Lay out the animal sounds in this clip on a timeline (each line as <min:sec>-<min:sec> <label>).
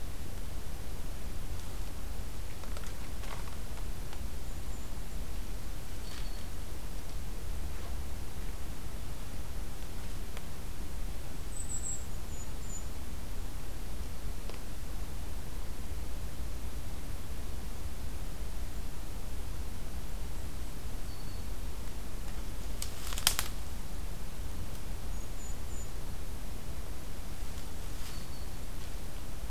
0:04.3-0:05.1 Golden-crowned Kinglet (Regulus satrapa)
0:05.9-0:06.4 Black-throated Green Warbler (Setophaga virens)
0:11.1-0:13.1 Golden-crowned Kinglet (Regulus satrapa)
0:21.0-0:21.6 Black-throated Green Warbler (Setophaga virens)
0:24.8-0:26.3 Golden-crowned Kinglet (Regulus satrapa)
0:28.1-0:28.4 Black-throated Green Warbler (Setophaga virens)